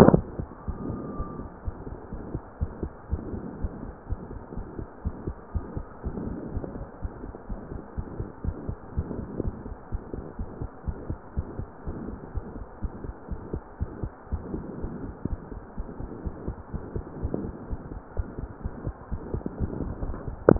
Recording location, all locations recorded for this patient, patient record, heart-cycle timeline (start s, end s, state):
pulmonary valve (PV)
aortic valve (AV)+pulmonary valve (PV)+tricuspid valve (TV)+mitral valve (MV)
#Age: Adolescent
#Sex: Female
#Height: 141.0 cm
#Weight: 34.4 kg
#Pregnancy status: False
#Murmur: Present
#Murmur locations: mitral valve (MV)+tricuspid valve (TV)
#Most audible location: mitral valve (MV)
#Systolic murmur timing: Holosystolic
#Systolic murmur shape: Decrescendo
#Systolic murmur grading: I/VI
#Systolic murmur pitch: Medium
#Systolic murmur quality: Blowing
#Diastolic murmur timing: nan
#Diastolic murmur shape: nan
#Diastolic murmur grading: nan
#Diastolic murmur pitch: nan
#Diastolic murmur quality: nan
#Outcome: Abnormal
#Campaign: 2015 screening campaign
0.00	1.94	unannotated
1.94	2.12	diastole
2.12	2.20	S1
2.20	2.32	systole
2.32	2.42	S2
2.42	2.56	diastole
2.56	2.70	S1
2.70	2.82	systole
2.82	2.92	S2
2.92	3.08	diastole
3.08	3.21	S1
3.21	3.30	systole
3.30	3.44	S2
3.44	3.58	diastole
3.58	3.72	S1
3.72	3.82	systole
3.82	3.94	S2
3.94	4.10	diastole
4.10	4.22	S1
4.22	4.32	systole
4.32	4.40	S2
4.40	4.56	diastole
4.56	4.68	S1
4.68	4.76	systole
4.76	4.86	S2
4.86	5.04	diastole
5.04	5.14	S1
5.14	5.24	systole
5.24	5.36	S2
5.36	5.52	diastole
5.52	5.66	S1
5.66	5.74	systole
5.74	5.86	S2
5.86	6.04	diastole
6.04	6.18	S1
6.18	6.28	systole
6.28	6.42	S2
6.42	6.54	diastole
6.54	6.68	S1
6.68	6.76	systole
6.76	6.86	S2
6.86	7.00	diastole
7.00	7.12	S1
7.12	7.24	systole
7.24	7.34	S2
7.34	7.50	diastole
7.50	7.62	S1
7.62	7.72	systole
7.72	7.80	S2
7.80	7.94	diastole
7.94	8.06	S1
8.06	8.18	systole
8.18	8.30	S2
8.30	8.44	diastole
8.44	8.56	S1
8.56	8.66	systole
8.66	8.78	S2
8.78	8.96	diastole
8.96	9.10	S1
9.10	9.18	systole
9.18	9.30	S2
9.30	9.44	diastole
9.44	9.58	S1
9.58	9.66	systole
9.66	9.76	S2
9.76	9.90	diastole
9.90	10.04	S1
10.04	10.14	systole
10.14	10.24	S2
10.24	10.40	diastole
10.40	10.50	S1
10.50	10.58	systole
10.58	10.70	S2
10.70	10.84	diastole
10.84	10.98	S1
10.98	11.06	systole
11.06	11.18	S2
11.18	11.34	diastole
11.34	11.48	S1
11.48	11.56	systole
11.56	11.68	S2
11.68	11.88	diastole
11.88	12.02	S1
12.02	12.12	systole
12.12	12.20	S2
12.20	12.36	diastole
12.36	12.46	S1
12.46	12.56	systole
12.56	12.66	S2
12.66	12.80	diastole
12.80	12.94	S1
12.94	13.04	systole
13.04	13.14	S2
13.14	13.30	diastole
13.30	13.42	S1
13.42	13.52	systole
13.52	13.62	S2
13.62	13.78	diastole
13.78	13.92	S1
13.92	14.02	systole
14.02	14.12	S2
14.12	14.30	diastole
14.30	14.42	S1
14.42	14.52	systole
14.52	14.66	S2
14.66	14.78	diastole
14.78	14.92	S1
14.92	15.02	systole
15.02	15.14	S2
15.14	15.26	diastole
15.26	15.40	S1
15.40	15.52	systole
15.52	15.62	S2
15.62	15.76	diastole
15.76	15.88	S1
15.88	16.00	systole
16.00	16.10	S2
16.10	16.24	diastole
16.24	16.34	S1
16.34	16.46	systole
16.46	16.56	S2
16.56	16.72	diastole
16.72	16.82	S1
16.82	16.94	systole
16.94	17.06	S2
17.06	17.22	diastole
17.22	20.59	unannotated